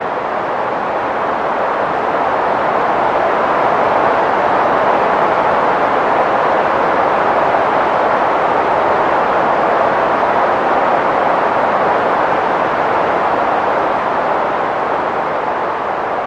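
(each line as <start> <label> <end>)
0.0 A steady, continuous wind howls without variation in intensity or tone. 16.3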